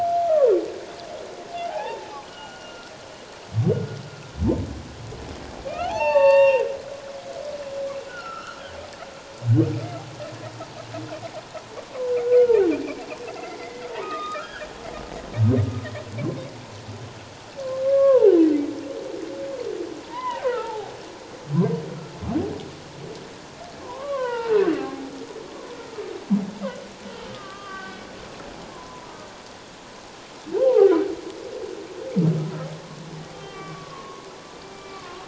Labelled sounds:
0.3	0.5	humpback whale, 0.88 to 1.4 kHz
1.7	2.9	humpback whale, 0.78 to 3.0 kHz
5.7	6.6	humpback whale, 0.78 to 5.6 kHz
8.1	8.6	humpback whale, 1.2 to 5.7 kHz
12.2	12.6	humpback whale, 1.3 to 1.5 kHz
13.4	14.7	humpback whale, 1.1 to 3.8 kHz
17.8	18.4	humpback whale, 0.78 to 1.7 kHz
20.0	20.9	humpback whale, 0.78 to 3.1 kHz
23.8	25.0	humpback whale, 0.78 to 3.2 kHz
27.3	28.0	humpback whale, 1.1 to 3.3 kHz
28.7	29.1	humpback whale, 0.94 to 1.1 kHz
30.6	30.9	humpback whale, 0.78 to 1.1 kHz
33.3	34.2	humpback whale, 0.97 to 3.2 kHz
34.6	35.2	humpback whale, 1.0 to 2.4 kHz

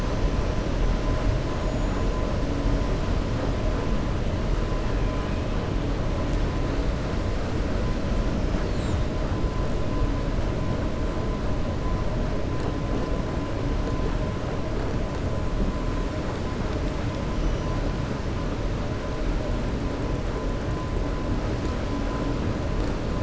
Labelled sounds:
1.5	2.1	killer whale, 6.6 to 7.0 kHz

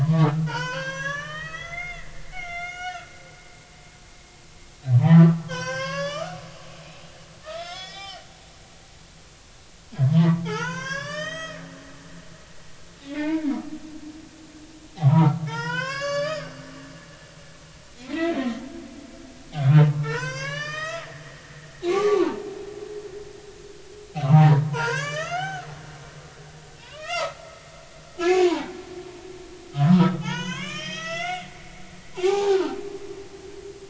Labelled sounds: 0.0	3.1	humpback whale, 0.86 to 6.6 kHz
3.5	8.3	humpback whale, 0.80 to 7.5 kHz
10.1	12.4	humpback whale, 0.80 to 7.8 kHz
13.1	13.5	humpback whale, 0.80 to 2.3 kHz
14.9	18.5	humpback whale, 0.80 to 8.0 kHz
19.6	21.1	humpback whale, 0.86 to 7.6 kHz
21.9	22.4	humpback whale, 0.80 to 1.3 kHz
24.2	25.7	humpback whale, 0.80 to 7.2 kHz
26.8	27.4	humpback whale, 0.83 to 4.3 kHz
28.2	28.7	humpback whale, 0.80 to 2.6 kHz
29.8	31.5	humpback whale, 0.80 to 6.8 kHz
32.1	32.8	humpback whale, 0.80 to 2.5 kHz

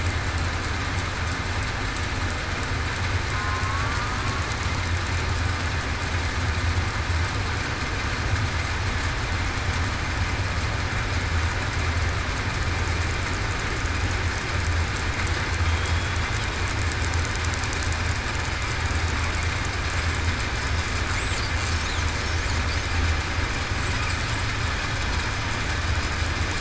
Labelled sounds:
15.6	16.0	killer whale, southern resident, 3.2 to 3.4 kHz

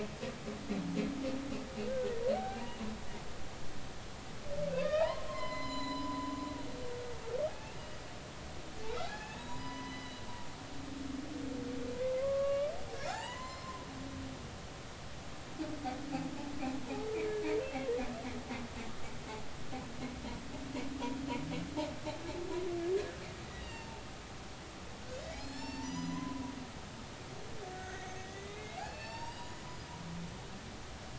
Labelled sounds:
1.9	2.8	humpback whale, 0.80 to 2.9 kHz
4.8	6.3	humpback whale, 0.80 to 7.1 kHz
7.5	8.0	humpback whale, 0.80 to 2.9 kHz
9.0	10.2	humpback whale, 0.80 to 6.9 kHz
12.2	13.9	humpback whale, 0.80 to 4.3 kHz
17.6	17.9	humpback whale, 2.6 to 2.8 kHz
22.9	24.0	humpback whale, 0.83 to 4.9 kHz
25.3	26.5	humpback whale, 0.83 to 7.0 kHz
27.7	29.9	humpback whale, 0.86 to 6.3 kHz

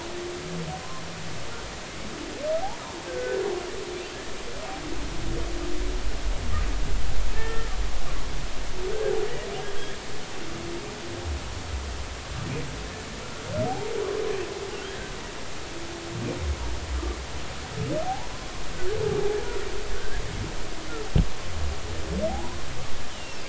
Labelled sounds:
3.1	3.4	humpback whale, 1.4 to 1.6 kHz
7.4	7.7	humpback whale, 1.7 to 1.9 kHz
18.0	18.3	humpback whale, 0.80 to 1.0 kHz
19.9	20.2	humpback whale, 1.4 to 1.8 kHz
22.3	22.6	humpback whale, 0.80 to 1.1 kHz

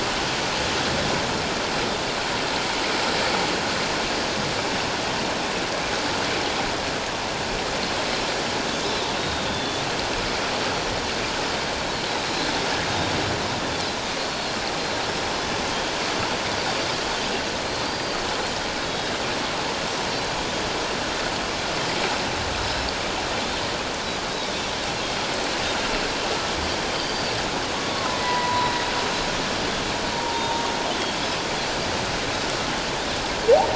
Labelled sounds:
9.2	9.8	Pacific white-sided dolphin, 3.4 to 3.8 kHz
12.2	12.5	Pacific white-sided dolphin, 3.9 to 4.2 kHz
14.2	14.6	Pacific white-sided dolphin, 4.0 to 4.4 kHz
17.6	18.2	Pacific white-sided dolphin, 4.1 to 4.8 kHz
18.8	19.1	Pacific white-sided dolphin, 3.7 to 3.9 kHz
26.9	27.3	Pacific white-sided dolphin, 4.5 to 4.8 kHz
27.9	28.8	humpback whale, 0.84 to 4.0 kHz
30.1	30.6	humpback whale, 0.88 to 3.8 kHz

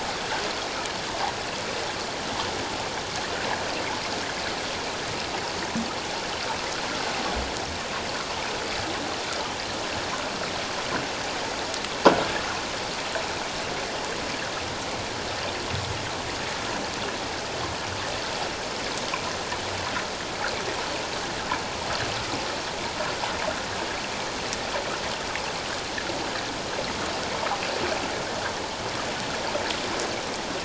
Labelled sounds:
27.3	27.6	water noise, 0.91 to 1.3 kHz

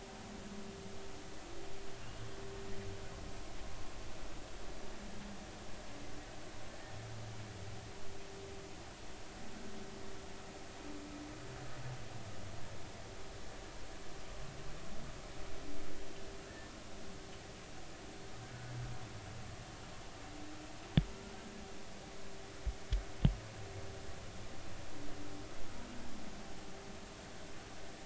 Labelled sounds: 6.7	7.0	humpback whale, 1.7 to 1.9 kHz
16.5	16.7	humpback whale, 1.5 to 1.9 kHz

